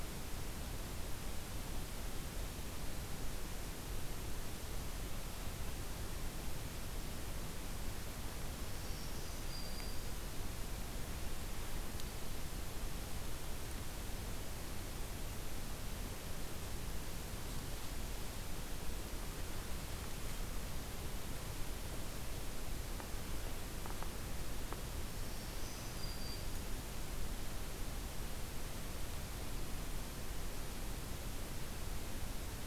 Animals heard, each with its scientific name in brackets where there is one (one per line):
Black-throated Green Warbler (Setophaga virens)